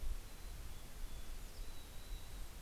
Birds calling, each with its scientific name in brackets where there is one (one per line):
Dusky Flycatcher (Empidonax oberholseri)
Mountain Chickadee (Poecile gambeli)